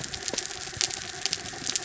{"label": "anthrophony, mechanical", "recorder": "SoundTrap 300"}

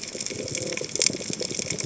{"label": "biophony, chatter", "recorder": "HydroMoth"}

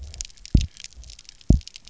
{"label": "biophony, double pulse", "recorder": "SoundTrap 300"}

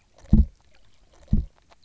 {"label": "biophony, grazing", "recorder": "SoundTrap 300"}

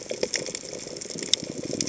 {"label": "biophony", "recorder": "HydroMoth"}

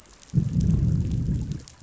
{"label": "biophony, growl", "recorder": "SoundTrap 500"}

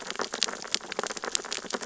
{"label": "biophony, sea urchins (Echinidae)", "recorder": "SoundTrap 600 or HydroMoth"}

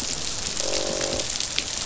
{"label": "biophony, croak", "recorder": "SoundTrap 500"}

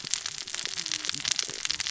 {"label": "biophony, cascading saw", "recorder": "SoundTrap 600 or HydroMoth"}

